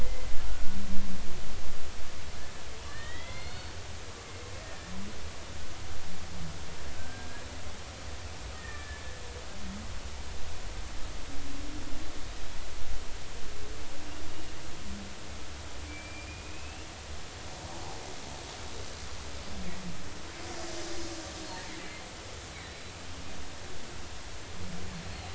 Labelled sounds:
0.0	0.8	killer whale, Bigg's (transient), 1.3 to 2.1 kHz
2.8	3.7	killer whale, Bigg's (transient), 1.7 to 4.5 kHz
4.6	4.9	killer whale, Bigg's (transient), 1.6 to 1.9 kHz
7.0	7.3	killer whale, Bigg's (transient), 1.4 to 1.7 kHz
9.5	10.0	killer whale, Bigg's (transient), 1.7 to 1.9 kHz
14.3	14.5	killer whale, Bigg's (transient), 2.8 to 3.0 kHz
15.9	16.9	killer whale, Bigg's (transient), 2.3 to 2.9 kHz
22.5	22.9	killer whale, Bigg's (transient), 3.9 to 4.1 kHz

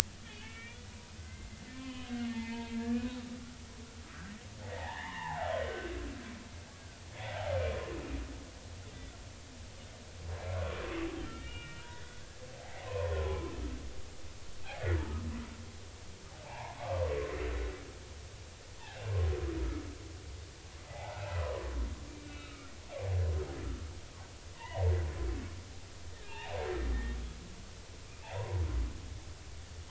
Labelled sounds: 0.3	0.8	humpback whale, 1.6 to 2.9 kHz
1.2	4.3	humpback whale, 0.83 to 3.2 kHz
4.6	5.9	humpback whale, 0.80 to 3.0 kHz
6.7	7.4	humpback whale, 1.4 to 3.5 kHz
10.8	12.2	humpback whale, 1.4 to 2.9 kHz
12.6	13.5	humpback whale, 0.80 to 1.2 kHz
14.6	15.3	humpback whale, 1.2 to 2.6 kHz
16.4	17.1	humpback whale, 0.80 to 2.5 kHz
18.8	19.1	humpback whale, 2.5 to 2.8 kHz
20.9	21.7	humpback whale, 0.80 to 2.1 kHz
22.1	22.7	humpback whale, 1.2 to 2.7 kHz
24.5	24.8	humpback whale, 0.80 to 2.1 kHz
26.1	26.6	humpback whale, 0.80 to 2.9 kHz
28.2	28.6	humpback whale, 0.80 to 1.1 kHz

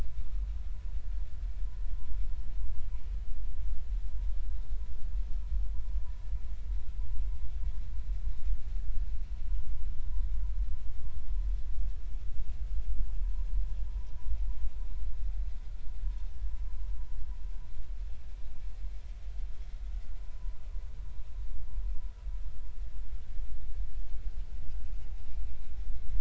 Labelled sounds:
11.0	11.3	vessel noise, 0.96 to 1.1 kHz
20.2	20.6	vessel noise, 0.93 to 1.1 kHz

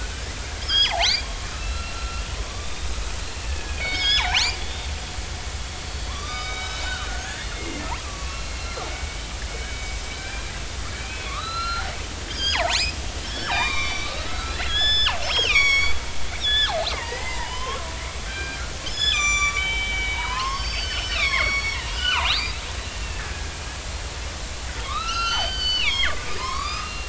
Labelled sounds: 0.6	2.2	killer whale, northern resident, 0.80 to 6.7 kHz
2.5	2.9	killer whale, northern resident, 3.5 to 3.8 kHz
3.2	4.9	killer whale, northern resident, 0.80 to 5.5 kHz
5.8	13.0	killer whale, northern resident, 0.80 to 6.9 kHz
13.2	16.0	killer whale, northern resident, 0.80 to 7.0 kHz
16.4	17.9	killer whale, northern resident, 0.83 to 5.7 kHz
18.3	22.6	killer whale, northern resident, 0.86 to 7.5 kHz
23.1	23.6	killer whale, northern resident, 1.5 to 1.9 kHz
24.9	27.0	killer whale, northern resident, 0.93 to 6.4 kHz

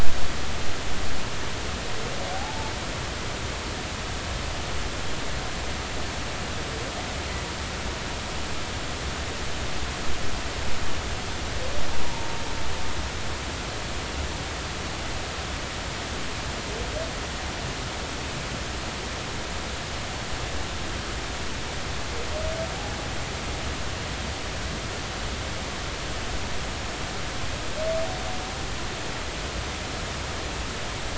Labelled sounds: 2.3	2.7	humpback whale, 0.80 to 0.93 kHz
12.0	12.3	humpback whale, 0.86 to 0.99 kHz

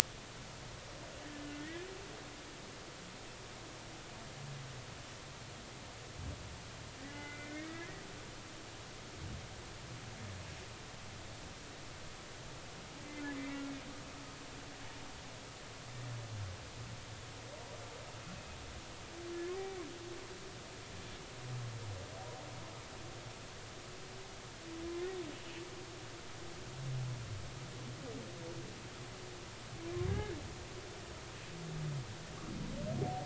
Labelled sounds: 7.0	8.0	humpback whale, 1.4 to 2.3 kHz
30.1	30.4	humpback whale, 1.6 to 1.8 kHz

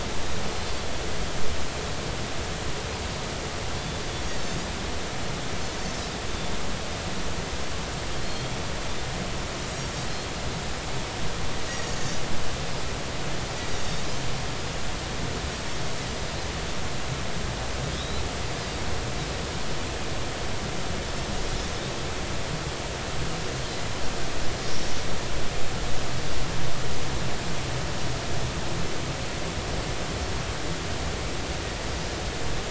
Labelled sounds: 8.3	8.6	Pacific white-sided dolphin, 3.2 to 3.4 kHz
11.7	11.9	Pacific white-sided dolphin, 1.8 to 2.0 kHz
17.9	18.2	Pacific white-sided dolphin, 3.2 to 4.1 kHz

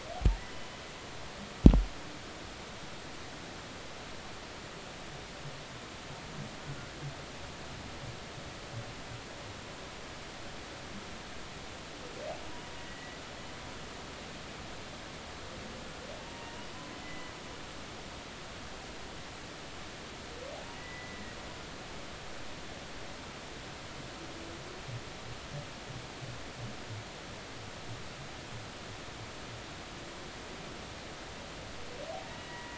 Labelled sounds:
0.5	0.8	humpback whale, 2.9 to 3.1 kHz
12.8	13.2	humpback whale, 1.9 to 2.1 kHz
16.2	17.3	humpback whale, 0.90 to 2.1 kHz
20.8	21.4	humpback whale, 1.9 to 2.0 kHz
32.4	32.7	humpback whale, 0.93 to 2.0 kHz

